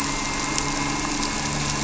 {"label": "anthrophony, boat engine", "recorder": "SoundTrap 300"}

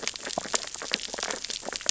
{"label": "biophony, sea urchins (Echinidae)", "recorder": "SoundTrap 600 or HydroMoth"}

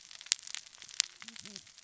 {"label": "biophony, cascading saw", "recorder": "SoundTrap 600 or HydroMoth"}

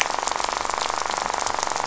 {"label": "biophony, rattle", "recorder": "SoundTrap 500"}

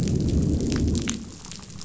{"label": "biophony, growl", "recorder": "SoundTrap 500"}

